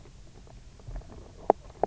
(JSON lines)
{"label": "biophony, knock croak", "recorder": "SoundTrap 300"}